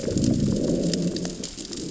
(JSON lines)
{"label": "biophony, growl", "recorder": "SoundTrap 600 or HydroMoth"}